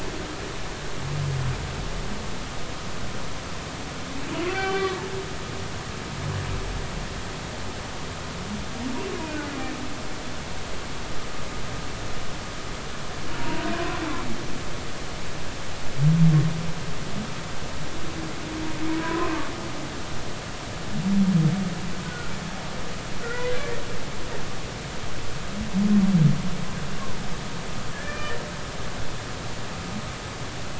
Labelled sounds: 4.5	5.0	humpback whale, 0.80 to 4.4 kHz
13.4	14.0	humpback whale, 0.90 to 1.1 kHz
18.9	19.5	humpback whale, 0.93 to 1.2 kHz
22.0	22.3	humpback whale, 1.3 to 1.5 kHz
23.2	23.6	humpback whale, 1.8 to 2.1 kHz
27.9	28.4	humpback whale, 1.2 to 2.5 kHz

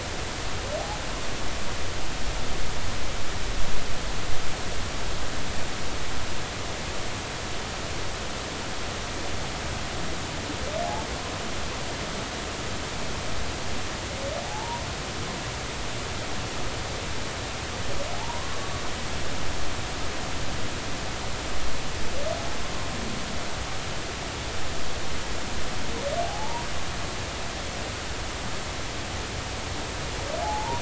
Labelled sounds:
14.4	14.9	humpback whale, 0.80 to 1.1 kHz
18.1	18.5	humpback whale, 0.80 to 1.1 kHz
26.2	26.7	humpback whale, 0.80 to 1.0 kHz
30.4	30.8	humpback whale, 0.80 to 1.1 kHz

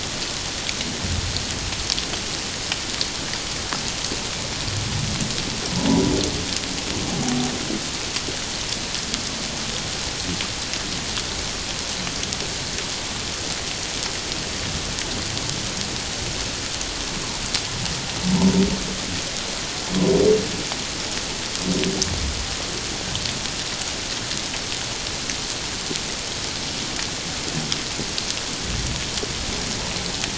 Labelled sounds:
5.9	6.1	humpback whale, 0.84 to 1.0 kHz

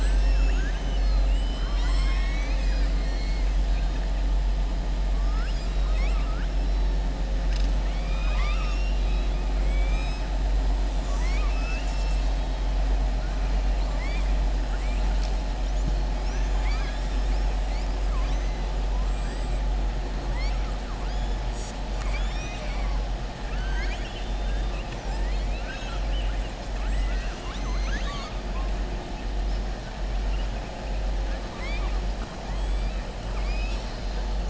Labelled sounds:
7.8	9.3	killer whale, southern resident, 1.0 to 6.8 kHz
13.8	14.3	killer whale, southern resident, 0.61 to 5.6 kHz
21.8	23.0	killer whale, southern resident, 0.98 to 7.9 kHz
23.4	26.4	killer whale, southern resident, 0.92 to 7.9 kHz
31.4	32.0	killer whale, southern resident, 0.98 to 5.3 kHz
33.2	34.2	killer whale, southern resident, 1.2 to 8.0 kHz

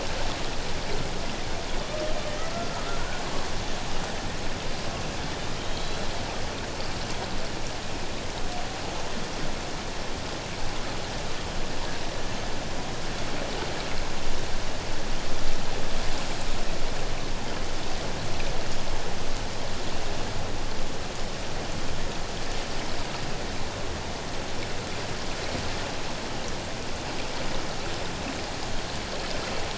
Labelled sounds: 2.5	2.9	killer whale, Bigg's (transient), 1.2 to 1.4 kHz
5.3	6.0	killer whale, Bigg's (transient), 3.1 to 3.8 kHz

